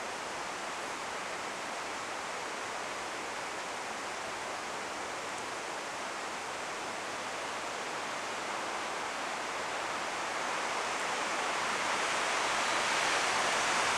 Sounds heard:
forest ambience